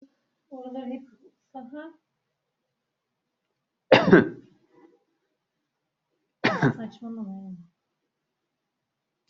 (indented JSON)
{
  "expert_labels": [
    {
      "quality": "good",
      "cough_type": "dry",
      "dyspnea": false,
      "wheezing": false,
      "stridor": false,
      "choking": false,
      "congestion": false,
      "nothing": true,
      "diagnosis": "healthy cough",
      "severity": "pseudocough/healthy cough"
    }
  ],
  "age": 33,
  "gender": "male",
  "respiratory_condition": false,
  "fever_muscle_pain": false,
  "status": "healthy"
}